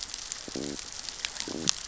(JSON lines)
{"label": "biophony, growl", "recorder": "SoundTrap 600 or HydroMoth"}